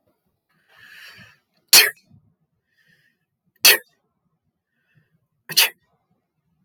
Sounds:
Sneeze